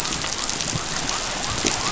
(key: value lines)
label: biophony
recorder: SoundTrap 500